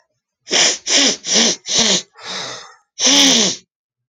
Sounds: Sniff